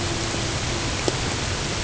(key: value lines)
label: ambient
recorder: HydroMoth